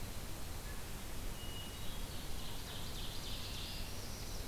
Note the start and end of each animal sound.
[1.38, 2.31] Hermit Thrush (Catharus guttatus)
[2.08, 3.82] Ovenbird (Seiurus aurocapilla)
[3.44, 4.47] Northern Parula (Setophaga americana)

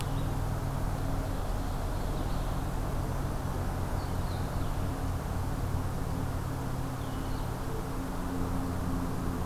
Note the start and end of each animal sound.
[0.00, 9.45] Blue-headed Vireo (Vireo solitarius)
[0.93, 2.73] Ovenbird (Seiurus aurocapilla)

